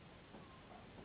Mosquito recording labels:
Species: Anopheles gambiae s.s.; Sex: female; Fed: unfed; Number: one; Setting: insect culture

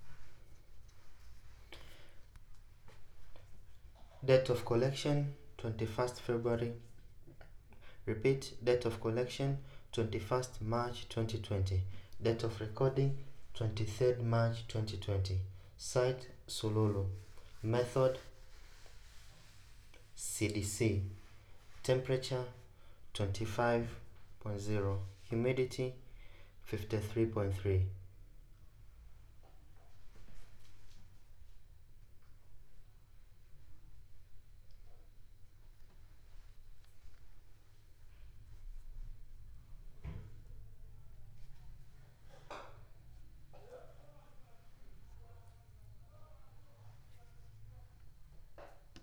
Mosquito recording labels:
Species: no mosquito; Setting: cup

